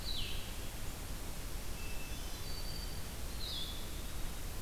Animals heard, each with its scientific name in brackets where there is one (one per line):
Black-throated Green Warbler (Setophaga virens)
Blue-headed Vireo (Vireo solitarius)
Hermit Thrush (Catharus guttatus)